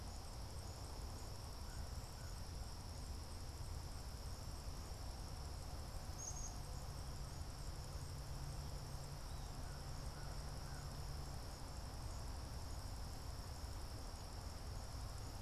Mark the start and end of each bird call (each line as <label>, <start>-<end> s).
American Crow (Corvus brachyrhynchos), 0.0-11.1 s
Black-capped Chickadee (Poecile atricapillus), 5.9-6.7 s